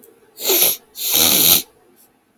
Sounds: Sniff